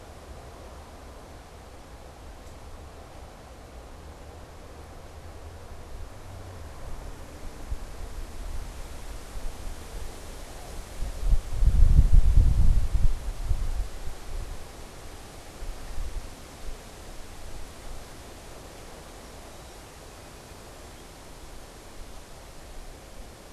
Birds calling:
Song Sparrow (Melospiza melodia)

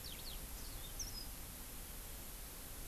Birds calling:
Yellow-fronted Canary (Crithagra mozambica)

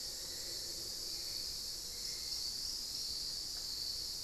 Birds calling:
Hauxwell's Thrush (Turdus hauxwelli), Black-faced Antthrush (Formicarius analis)

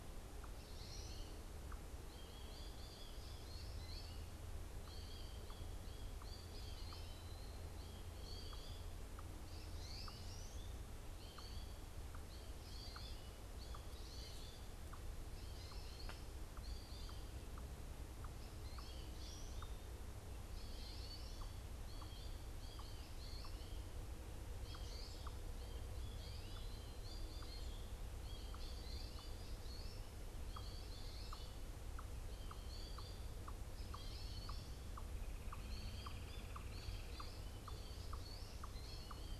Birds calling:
Red-bellied Woodpecker (Melanerpes carolinus), American Goldfinch (Spinus tristis)

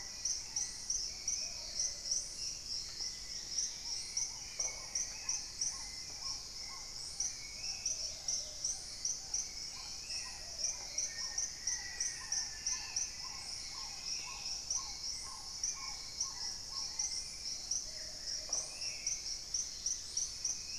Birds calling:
Dusky-capped Greenlet (Pachysylvia hypoxantha), Gilded Barbet (Capito auratus), Hauxwell's Thrush (Turdus hauxwelli), Spot-winged Antshrike (Pygiptila stellaris), Black-tailed Trogon (Trogon melanurus), Paradise Tanager (Tangara chilensis), Red-necked Woodpecker (Campephilus rubricollis), Plumbeous Pigeon (Patagioenas plumbea), Black-faced Antthrush (Formicarius analis)

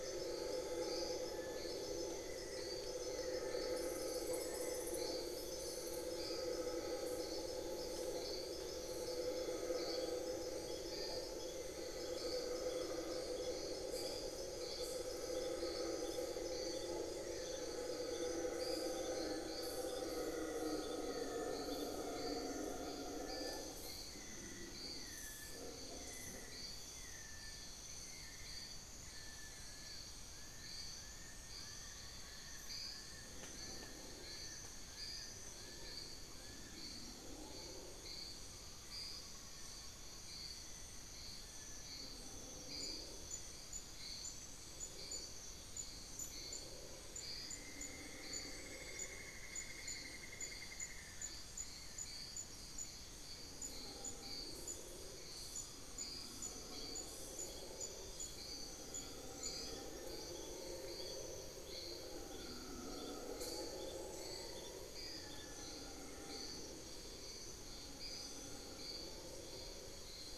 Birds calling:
Cinnamon-throated Woodcreeper (Dendrexetastes rufigula), Amazonian Pygmy-Owl (Glaucidium hardyi), Fasciated Antshrike (Cymbilaimus lineatus)

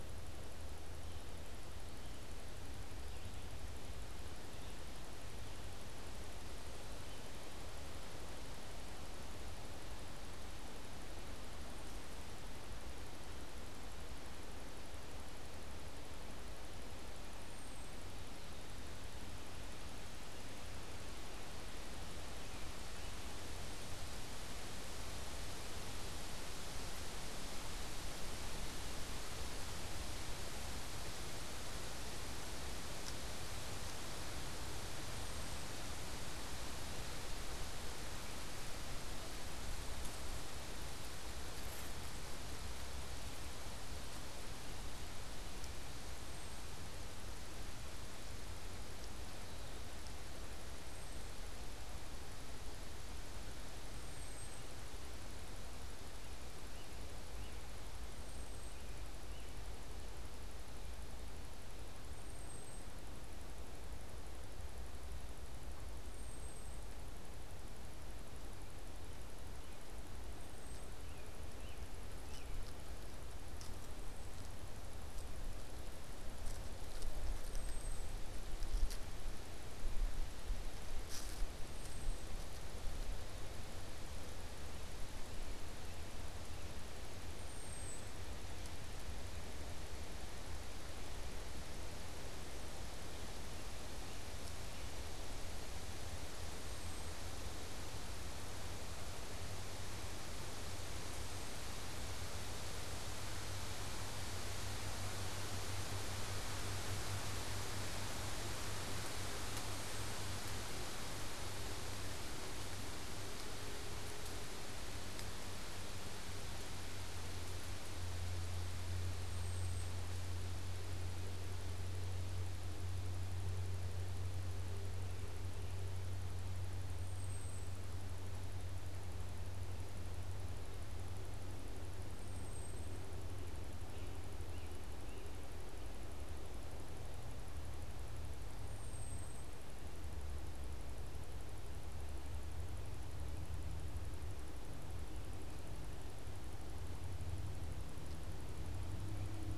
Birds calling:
American Robin (Turdus migratorius), Red-eyed Vireo (Vireo olivaceus)

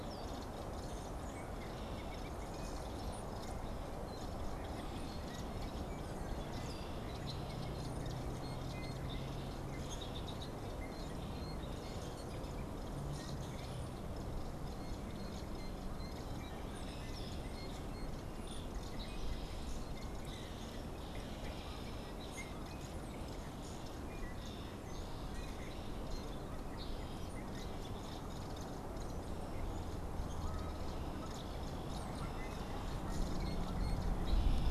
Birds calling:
Canada Goose (Branta canadensis), unidentified bird, American Robin (Turdus migratorius)

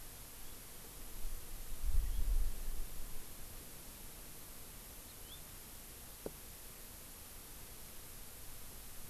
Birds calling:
House Finch (Haemorhous mexicanus)

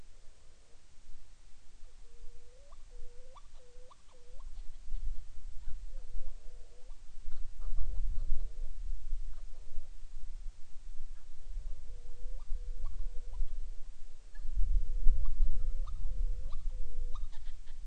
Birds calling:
Hawaiian Petrel (Pterodroma sandwichensis)

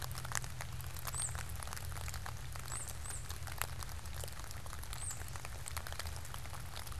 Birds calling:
Tufted Titmouse (Baeolophus bicolor)

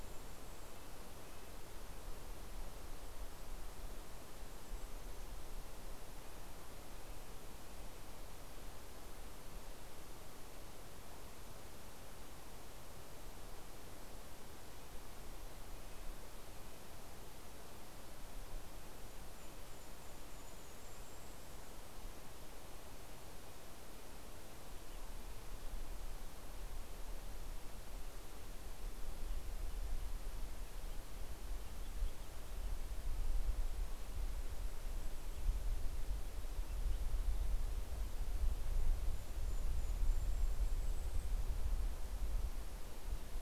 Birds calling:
Red-breasted Nuthatch (Sitta canadensis), Golden-crowned Kinglet (Regulus satrapa)

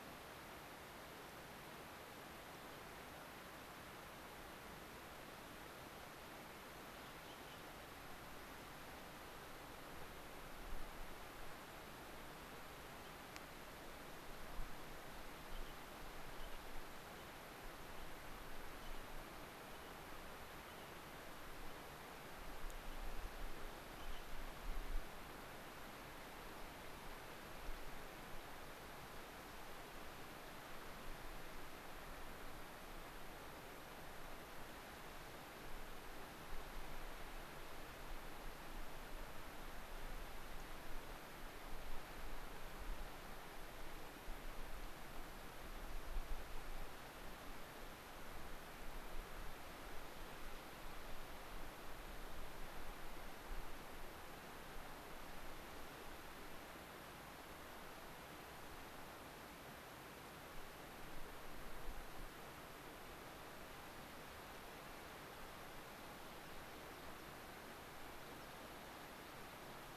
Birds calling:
unidentified bird, American Pipit (Anthus rubescens)

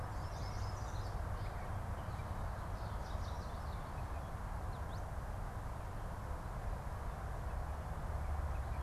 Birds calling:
Yellow Warbler (Setophaga petechia), Chestnut-sided Warbler (Setophaga pensylvanica)

